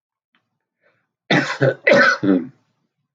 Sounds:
Cough